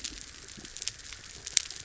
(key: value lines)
label: biophony
recorder: SoundTrap 300